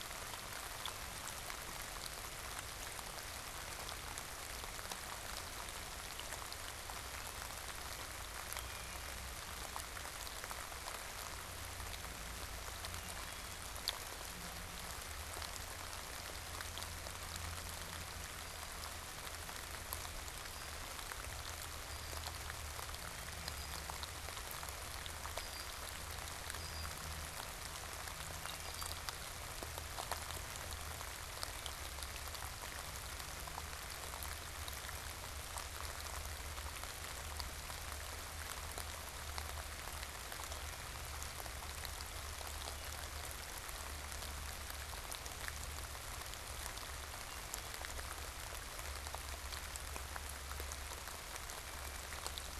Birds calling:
Red-winged Blackbird (Agelaius phoeniceus)

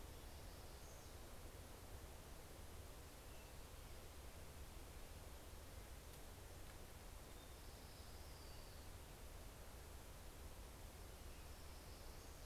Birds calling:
Orange-crowned Warbler (Leiothlypis celata)

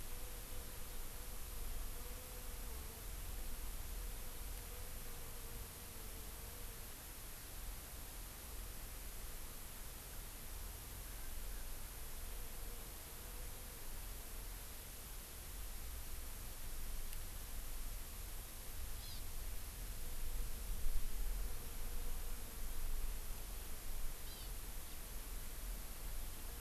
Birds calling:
Hawaii Amakihi (Chlorodrepanis virens)

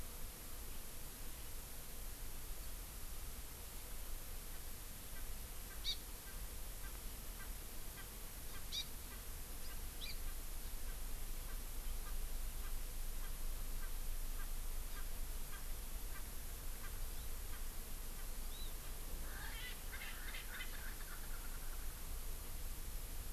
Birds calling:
Erckel's Francolin (Pternistis erckelii), Hawaii Amakihi (Chlorodrepanis virens)

